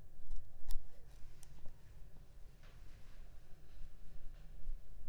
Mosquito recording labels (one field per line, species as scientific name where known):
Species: Anopheles funestus s.l.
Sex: female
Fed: unfed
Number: one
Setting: cup